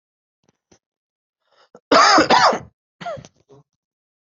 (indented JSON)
{
  "expert_labels": [
    {
      "quality": "ok",
      "cough_type": "dry",
      "dyspnea": false,
      "wheezing": false,
      "stridor": false,
      "choking": false,
      "congestion": false,
      "nothing": true,
      "diagnosis": "COVID-19",
      "severity": "mild"
    }
  ]
}